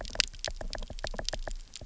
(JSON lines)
{"label": "biophony, knock", "recorder": "SoundTrap 300"}